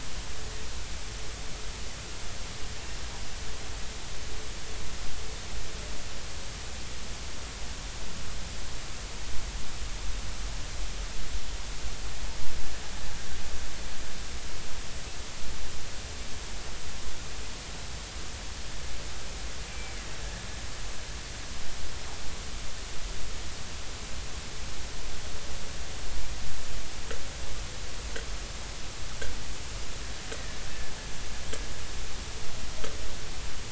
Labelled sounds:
19.7	20.0	killer whale, Bigg's (transient), 2.2 to 2.4 kHz

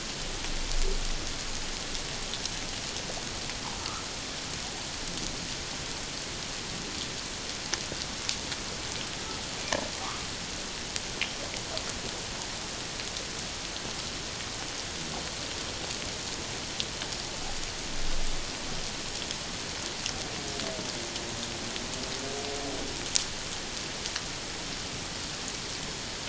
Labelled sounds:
3.8	4.0	humpback whale, 1.1 to 1.4 kHz
10.0	10.3	humpback whale, 0.91 to 1.4 kHz

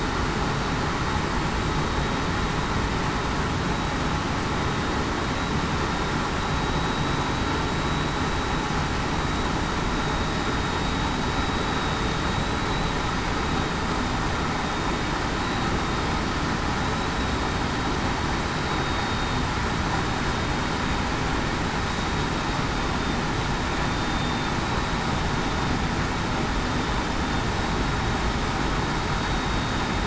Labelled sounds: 6.5	7.1	vessel noise, 3.77 to 3.82 kHz
14.6	15.0	vessel noise, 3.68 to 3.73 kHz
18.7	19.4	vessel noise, 3.7 to 3.8 kHz
23.8	24.3	vessel noise, 3.6 to 3.7 kHz

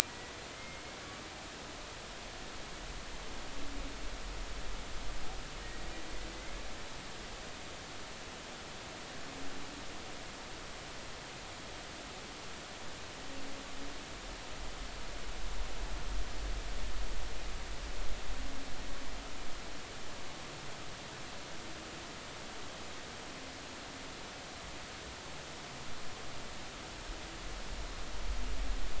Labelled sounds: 0.1	0.8	humpback whale, 1.9 to 2.2 kHz

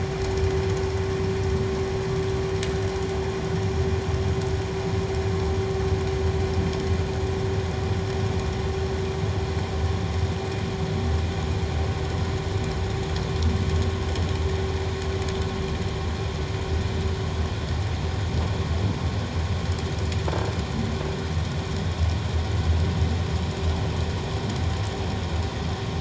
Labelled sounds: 20.3	20.6	croaking sound likely from a nearby submerged object, 1.5 to 1.7 kHz

